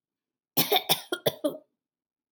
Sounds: Cough